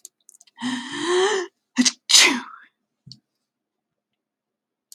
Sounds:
Sneeze